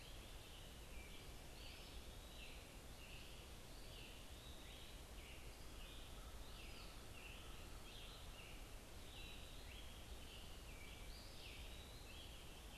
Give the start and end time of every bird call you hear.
0.0s-12.8s: unidentified bird

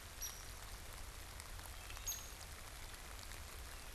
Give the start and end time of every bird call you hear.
0.0s-3.9s: Hairy Woodpecker (Dryobates villosus)

